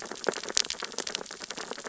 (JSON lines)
{"label": "biophony, sea urchins (Echinidae)", "recorder": "SoundTrap 600 or HydroMoth"}